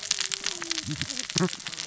{"label": "biophony, cascading saw", "recorder": "SoundTrap 600 or HydroMoth"}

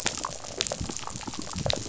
{"label": "biophony", "recorder": "SoundTrap 500"}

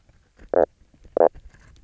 {"label": "biophony, knock croak", "recorder": "SoundTrap 300"}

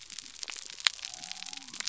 {"label": "biophony", "recorder": "SoundTrap 300"}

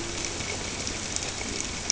{"label": "ambient", "recorder": "HydroMoth"}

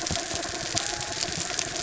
{"label": "anthrophony, mechanical", "recorder": "SoundTrap 300"}
{"label": "biophony", "recorder": "SoundTrap 300"}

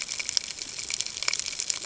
{"label": "ambient", "recorder": "HydroMoth"}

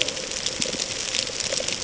{"label": "ambient", "recorder": "HydroMoth"}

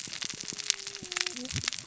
{"label": "biophony, cascading saw", "recorder": "SoundTrap 600 or HydroMoth"}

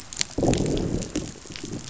{"label": "biophony, growl", "recorder": "SoundTrap 500"}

